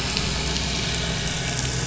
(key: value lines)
label: anthrophony, boat engine
recorder: SoundTrap 500